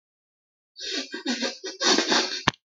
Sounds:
Sniff